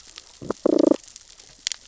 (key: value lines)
label: biophony, damselfish
recorder: SoundTrap 600 or HydroMoth

label: biophony, growl
recorder: SoundTrap 600 or HydroMoth